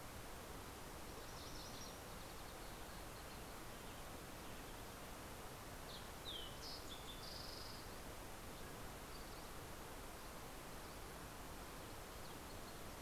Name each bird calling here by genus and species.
Geothlypis tolmiei, Passerella iliaca, Oreortyx pictus